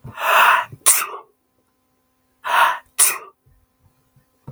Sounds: Sneeze